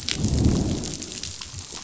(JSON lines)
{"label": "biophony, growl", "recorder": "SoundTrap 500"}